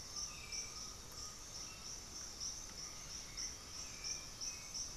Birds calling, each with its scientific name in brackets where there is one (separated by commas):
Bluish-fronted Jacamar (Galbula cyanescens), Hauxwell's Thrush (Turdus hauxwelli), Russet-backed Oropendola (Psarocolius angustifrons), Undulated Tinamou (Crypturellus undulatus)